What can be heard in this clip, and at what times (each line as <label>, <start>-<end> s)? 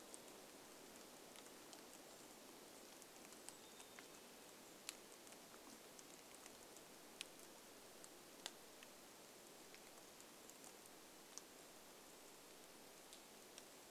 rain, 0-14 s
Black-capped Chickadee song, 2-6 s
Brown Creeper call, 2-6 s